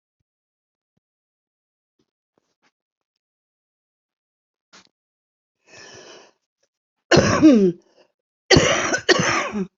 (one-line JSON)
{"expert_labels": [{"quality": "good", "cough_type": "wet", "dyspnea": true, "wheezing": false, "stridor": false, "choking": false, "congestion": false, "nothing": false, "diagnosis": "lower respiratory tract infection", "severity": "mild"}], "age": 60, "gender": "female", "respiratory_condition": true, "fever_muscle_pain": true, "status": "symptomatic"}